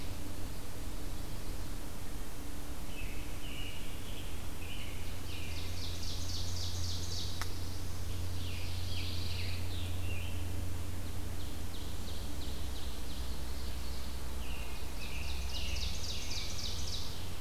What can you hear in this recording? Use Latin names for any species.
Turdus migratorius, Seiurus aurocapilla, Setophaga pinus, Piranga olivacea